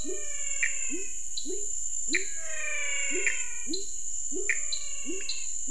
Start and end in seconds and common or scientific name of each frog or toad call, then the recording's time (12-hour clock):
0.0	5.3	Pithecopus azureus
0.0	5.5	dwarf tree frog
0.0	5.5	pepper frog
0.0	5.5	menwig frog
7:30pm